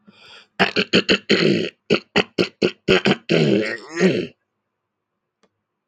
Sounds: Throat clearing